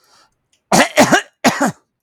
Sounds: Cough